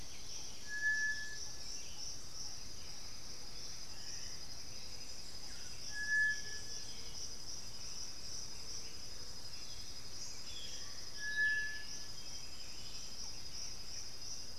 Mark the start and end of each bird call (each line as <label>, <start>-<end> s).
White-winged Becard (Pachyramphus polychopterus), 0.0-0.7 s
Black-billed Thrush (Turdus ignobilis), 0.0-14.6 s
Undulated Tinamou (Crypturellus undulatus), 2.1-4.2 s
Buff-throated Saltator (Saltator maximus), 3.4-12.2 s
Boat-billed Flycatcher (Megarynchus pitangua), 10.3-11.0 s
Striped Cuckoo (Tapera naevia), 13.6-14.6 s